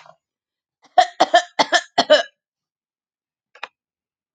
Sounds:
Cough